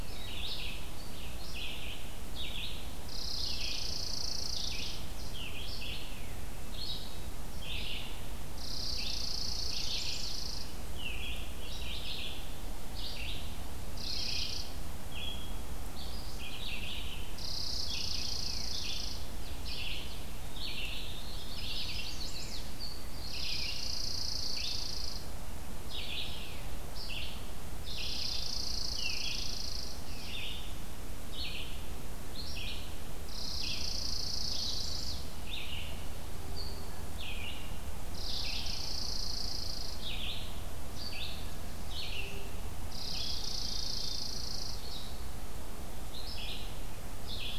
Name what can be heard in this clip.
Red-eyed Vireo, Chipping Sparrow, Chimney Swift